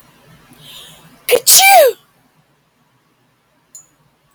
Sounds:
Sneeze